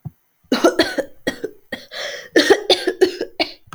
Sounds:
Cough